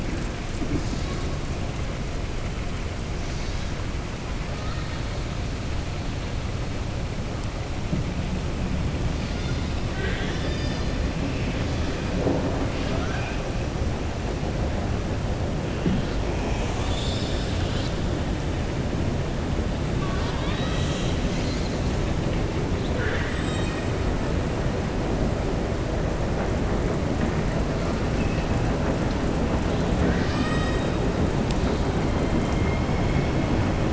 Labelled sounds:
9.8	11.0	killer whale, southern resident, 1.5 to 7.2 kHz
12.6	13.4	killer whale, southern resident, 0.65 to 5.2 kHz

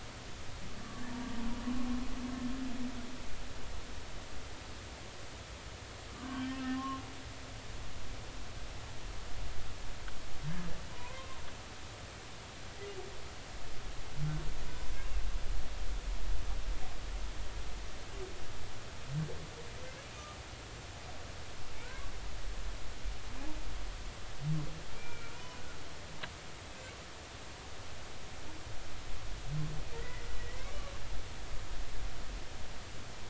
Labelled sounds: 6.1	7.0	humpback whale, 0.99 to 3.2 kHz
10.9	11.4	humpback whale, 0.93 to 1.1 kHz
21.9	22.1	humpback whale, 0.96 to 1.2 kHz
24.9	25.6	humpback whale, 0.93 to 2.4 kHz
29.9	30.7	humpback whale, 1.8 to 2.3 kHz

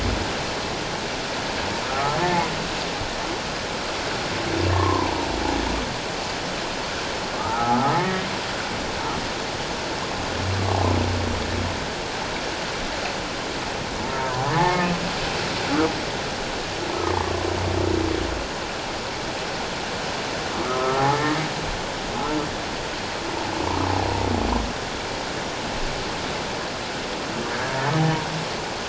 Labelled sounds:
1.9	2.2	humpback whale, 1.2 to 1.4 kHz
4.7	5.2	humpback whale, 0.78 to 1.2 kHz
7.4	8.3	humpback whale, 0.78 to 2.2 kHz
10.7	11.0	humpback whale, 0.97 to 1.2 kHz
14.6	15.0	humpback whale, 1.2 to 2.2 kHz
20.6	21.2	humpback whale, 0.78 to 1.4 kHz

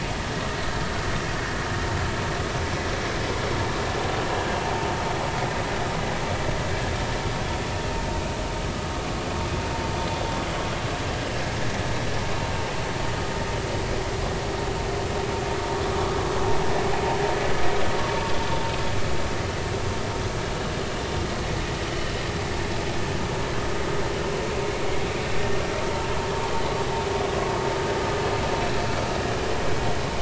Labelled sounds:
4.7	4.9	vessel noise, 0.80 to 0.93 kHz
21.9	22.1	vessel noise, 2.9 to 3.1 kHz

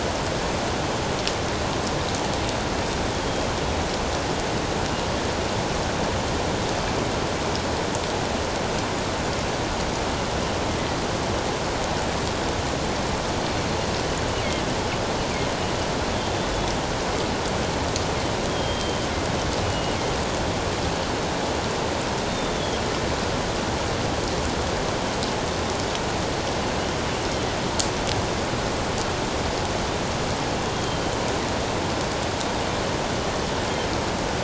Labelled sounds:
18.5	20.0	killer whale, northern resident, G clan, GG subclan, 2.8 to 3.3 kHz
22.3	22.8	killer whale, northern resident, G clan, GG subclan, 3.2 to 3.7 kHz
30.7	31.2	killer whale, northern resident, G clan, GG subclan, 3.0 to 3.3 kHz

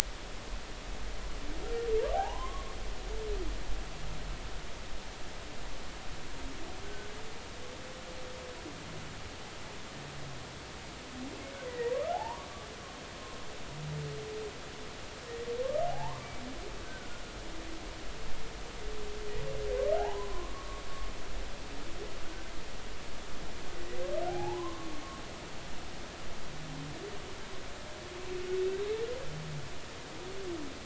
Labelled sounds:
2.1	2.7	humpback whale, 0.80 to 3.3 kHz
6.8	7.1	humpback whale, 1.4 to 1.6 kHz
11.7	12.5	humpback whale, 0.80 to 2.0 kHz
15.9	17.1	humpback whale, 0.80 to 1.6 kHz
20.0	20.8	humpback whale, 0.80 to 1.2 kHz
24.3	24.9	humpback whale, 0.80 to 1.2 kHz

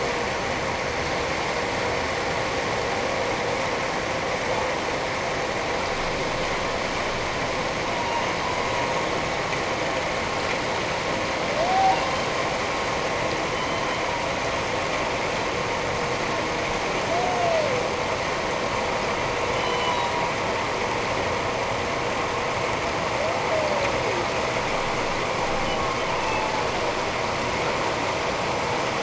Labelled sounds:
7.9	8.2	humpback whale, 0.88 to 1.0 kHz
11.7	12.0	humpback whale, 0.78 to 0.84 kHz
19.5	20.1	humpback whale, 0.91 to 3.1 kHz
26.2	26.5	humpback whale, 0.84 to 2.7 kHz

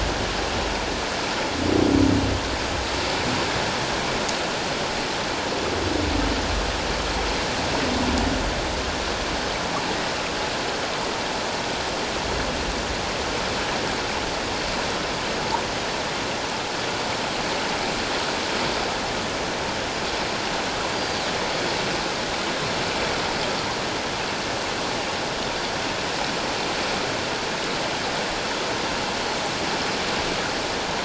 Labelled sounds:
20.9	21.2	Pacific white-sided dolphin, 4.4 to 4.8 kHz

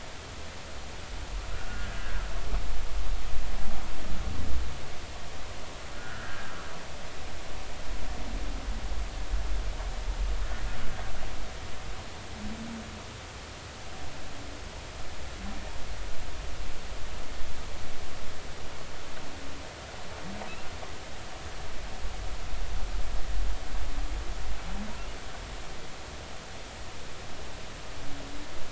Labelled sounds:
1.6	2.0	humpback whale, 1.4 to 1.8 kHz
5.9	6.5	humpback whale, 1.2 to 1.9 kHz

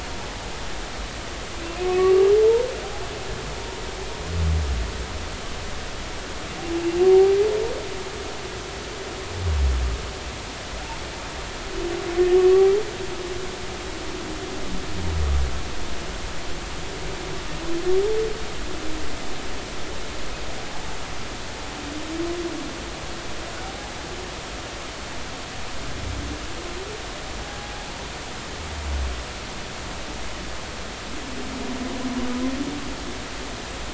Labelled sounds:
1.8	2.7	humpback whale, 0.83 to 1.2 kHz
23.7	23.9	humpback whale, 0.80 to 0.86 kHz
27.4	27.9	humpback whale, 0.80 to 0.90 kHz

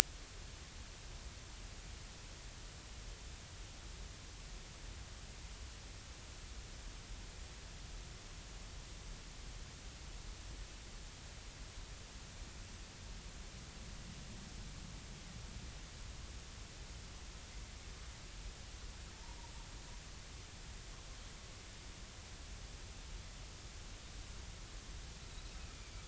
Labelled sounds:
25.7	26.0	Pacific white-sided dolphin, 2.2 to 2.4 kHz

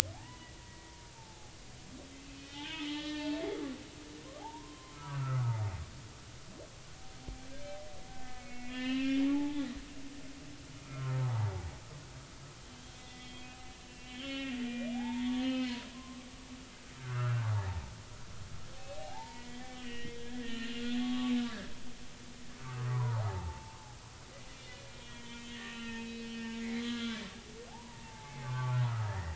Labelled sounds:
0.1	1.5	humpback whale, 0.80 to 3.0 kHz
2.3	3.5	humpback whale, 0.80 to 3.7 kHz
4.4	5.4	humpback whale, 0.80 to 1.5 kHz
8.1	9.6	humpback whale, 0.80 to 4.2 kHz
10.8	11.7	humpback whale, 0.80 to 1.5 kHz
13.0	16.3	humpback whale, 0.80 to 4.2 kHz
17.0	17.5	humpback whale, 1.1 to 1.6 kHz
18.8	20.7	humpback whale, 0.80 to 4.2 kHz
21.3	22.3	humpback whale, 0.99 to 1.8 kHz
22.6	23.8	humpback whale, 0.80 to 1.3 kHz
25.0	29.3	humpback whale, 0.80 to 4.0 kHz

